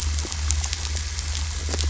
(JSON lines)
{"label": "anthrophony, boat engine", "recorder": "SoundTrap 500"}